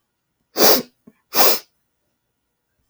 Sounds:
Sniff